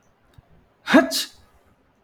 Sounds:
Sneeze